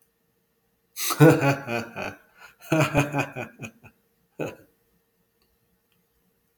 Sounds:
Laughter